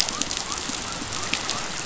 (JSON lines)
{"label": "biophony", "recorder": "SoundTrap 500"}